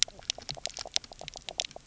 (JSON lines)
{"label": "biophony, knock croak", "recorder": "SoundTrap 300"}